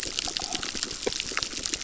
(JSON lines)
{"label": "biophony, crackle", "recorder": "SoundTrap 600"}